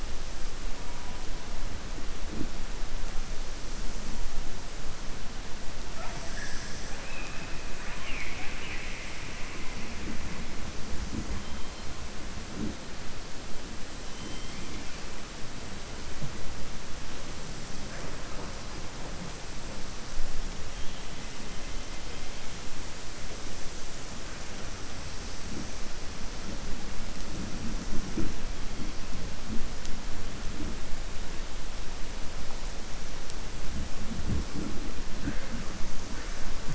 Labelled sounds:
7.7	9.2	killer whale, southern resident, 0.86 to 3.7 kHz
14.0	15.0	killer whale, southern resident, 1.7 to 4.0 kHz

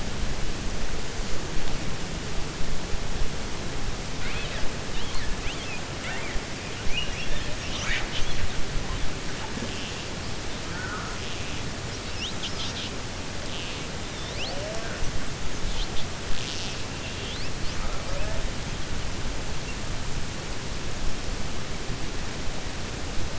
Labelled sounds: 4.1	4.6	killer whale, 1.4 to 4.3 kHz
6.8	7.5	killer whale, 1.6 to 4.3 kHz

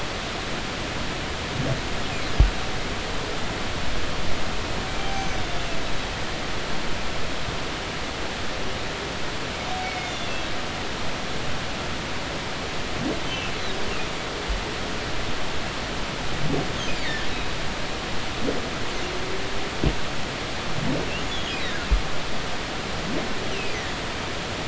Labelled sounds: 5.0	5.4	humpback whale, 0.80 to 6.3 kHz
9.8	10.3	humpback whale, 2.1 to 3.6 kHz
13.3	13.5	humpback whale, 2.6 to 3.1 kHz
17.0	17.3	humpback whale, 1.5 to 2.4 kHz
21.3	21.6	humpback whale, 3.1 to 3.5 kHz
23.5	23.8	humpback whale, 2.4 to 3.2 kHz

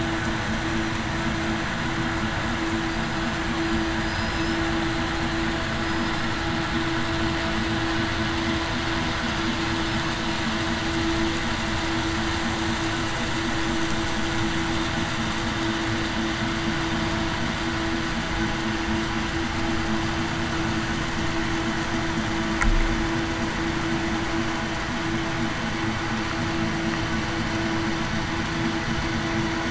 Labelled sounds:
4.0	4.6	killer whale, southern resident, 4.9 to 5.2 kHz

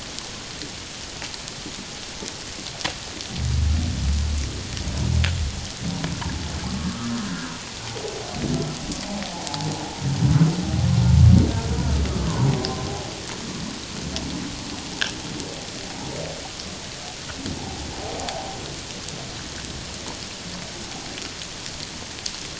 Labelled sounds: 7.3	7.5	humpback whale, 1.4 to 1.7 kHz
9.4	9.7	humpback whale, 0.78 to 0.97 kHz
12.6	12.9	humpback whale, 1.0 to 1.1 kHz
17.6	17.9	humpback whale, 0.78 to 0.97 kHz

